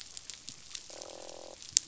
{"label": "biophony, croak", "recorder": "SoundTrap 500"}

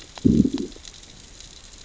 {"label": "biophony, growl", "recorder": "SoundTrap 600 or HydroMoth"}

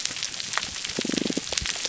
{"label": "biophony", "recorder": "SoundTrap 300"}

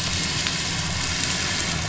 {"label": "anthrophony, boat engine", "recorder": "SoundTrap 500"}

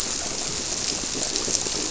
{"label": "biophony", "recorder": "SoundTrap 300"}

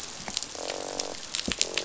{"label": "biophony, croak", "recorder": "SoundTrap 500"}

